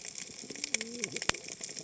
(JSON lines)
{"label": "biophony, cascading saw", "recorder": "HydroMoth"}